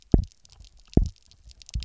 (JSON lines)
{"label": "biophony, double pulse", "recorder": "SoundTrap 300"}